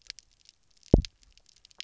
{"label": "biophony, double pulse", "recorder": "SoundTrap 300"}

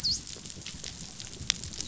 {"label": "biophony, dolphin", "recorder": "SoundTrap 500"}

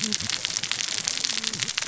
{"label": "biophony, cascading saw", "recorder": "SoundTrap 600 or HydroMoth"}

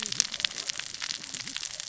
{"label": "biophony, cascading saw", "recorder": "SoundTrap 600 or HydroMoth"}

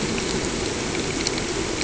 {"label": "anthrophony, boat engine", "recorder": "HydroMoth"}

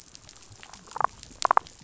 {"label": "biophony, damselfish", "recorder": "SoundTrap 500"}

